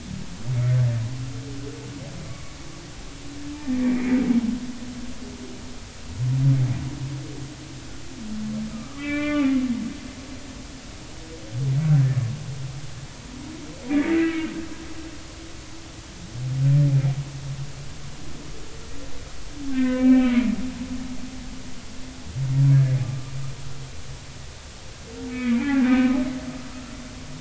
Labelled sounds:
2.3	2.6	humpback whale, 1.1 to 2.3 kHz
3.8	4.1	humpback whale, 1.8 to 2.5 kHz
8.7	9.5	humpback whale, 1.1 to 3.3 kHz
13.9	14.5	humpback whale, 1.9 to 2.5 kHz
19.7	20.5	humpback whale, 1.4 to 3.1 kHz
23.0	23.3	humpback whale, 1.15 to 1.25 kHz
25.3	26.1	humpback whale, 0.80 to 2.6 kHz

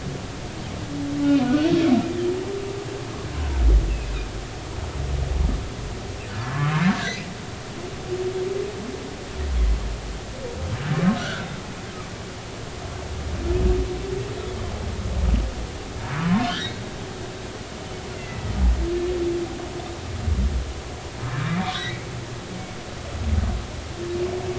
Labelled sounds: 1.4	1.7	humpback whale, 1.4 to 1.6 kHz
7.0	7.2	humpback whale, 3.8 to 4.4 kHz
11.2	11.4	humpback whale, 1.3 to 1.7 kHz
16.2	16.8	humpback whale, 0.90 to 2.0 kHz
18.2	18.5	humpback whale, 1.9 to 2.1 kHz
21.6	22.0	humpback whale, 1.9 to 3.6 kHz

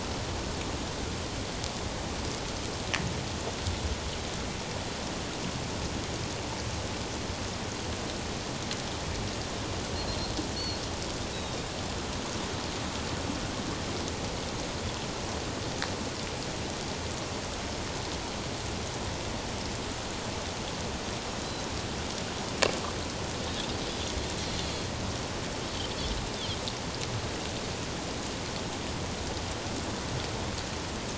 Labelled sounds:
9.9	10.8	Pacific white-sided dolphin, 4.1 to 4.5 kHz
21.4	21.6	Pacific white-sided dolphin, 3.9 to 4.1 kHz

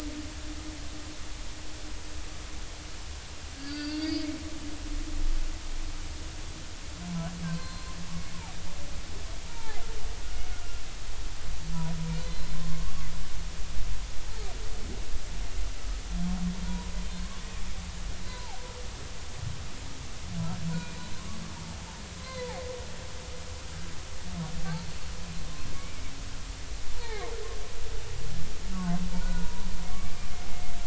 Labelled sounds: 3.6	4.3	humpback whale, 1.4 to 5.0 kHz
7.5	7.9	humpback whale, 0.99 to 4.2 kHz
9.5	9.8	humpback whale, 0.80 to 0.99 kHz
12.2	12.9	humpback whale, 0.99 to 4.1 kHz
16.6	16.9	humpback whale, 0.93 to 1.0 kHz
18.3	18.6	humpback whale, 0.80 to 1.1 kHz
20.7	21.0	humpback whale, 2.4 to 2.5 kHz
22.2	22.6	humpback whale, 0.80 to 2.1 kHz
25.7	26.0	humpback whale, 2.1 to 2.4 kHz
27.0	27.3	humpback whale, 0.80 to 2.4 kHz
29.1	29.7	humpback whale, 0.86 to 1.5 kHz

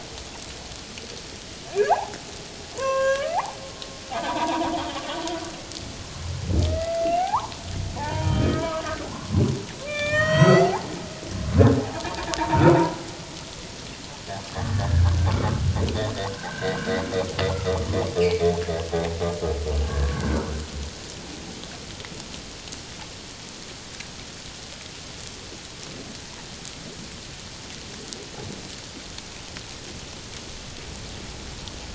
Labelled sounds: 1.9	3.4	humpback whale, 0.78 to 7.2 kHz
4.1	4.7	humpback whale, 0.78 to 1.3 kHz
6.7	7.6	humpback whale, 0.78 to 2.0 kHz
8.0	8.8	humpback whale, 0.81 to 3.2 kHz
9.1	9.4	humpback whale, 0.97 to 1.2 kHz
9.8	10.9	humpback whale, 0.78 to 7.9 kHz
11.8	12.4	humpback whale, 0.78 to 1.0 kHz
14.7	15.1	humpback whale, 1.4 to 1.9 kHz
16.3	16.7	humpback whale, 1.5 to 1.7 kHz
17.5	18.5	humpback whale, 0.91 to 3.0 kHz
19.8	20.6	humpback whale, 1.2 to 1.8 kHz

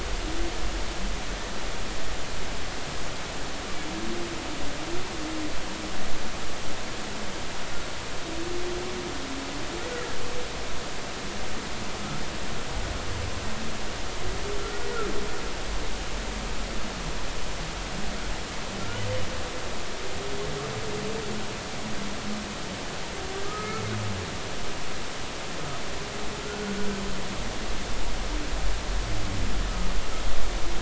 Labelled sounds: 23.4	23.8	humpback whale, 1.2 to 1.8 kHz
26.4	26.9	humpback whale, 1.3 to 1.5 kHz

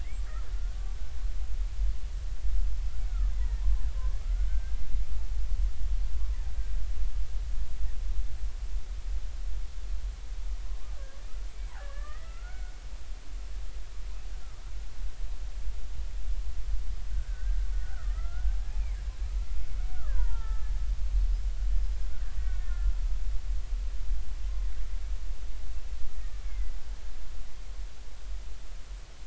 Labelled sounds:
3.3	3.6	killer whale, Bigg's (transient), 1.7 to 2.1 kHz
4.5	4.8	killer whale, Bigg's (transient), 1.5 to 1.6 kHz
10.7	10.9	killer whale, Bigg's (transient), 0.99 to 1.2 kHz
11.5	12.8	killer whale, Bigg's (transient), 1.1 to 8.0 kHz
17.1	19.0	killer whale, Bigg's (transient), 1.2 to 2.6 kHz
19.9	20.7	killer whale, Bigg's (transient), 0.83 to 1.8 kHz
21.7	22.9	killer whale, Bigg's (transient), 1.7 to 5.2 kHz
26.2	26.8	killer whale, Bigg's (transient), 1.7 to 2.3 kHz

